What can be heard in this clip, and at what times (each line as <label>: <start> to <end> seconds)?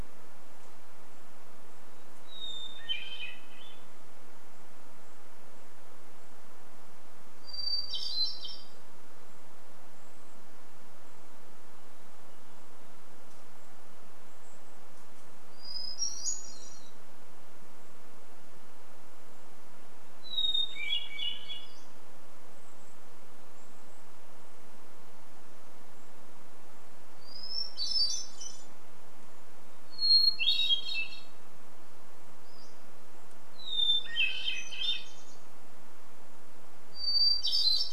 Hermit Thrush song: 2 to 4 seconds
Golden-crowned Kinglet call: 2 to 6 seconds
Hermit Thrush song: 6 to 10 seconds
Golden-crowned Kinglet call: 10 to 16 seconds
Hermit Thrush song: 14 to 18 seconds
Golden-crowned Kinglet call: 18 to 26 seconds
Hermit Thrush song: 20 to 22 seconds
Pacific-slope Flycatcher call: 20 to 22 seconds
Hermit Thrush song: 26 to 38 seconds
Golden-crowned Kinglet call: 30 to 32 seconds
Pacific-slope Flycatcher call: 32 to 34 seconds